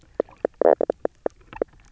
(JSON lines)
{"label": "biophony, knock croak", "recorder": "SoundTrap 300"}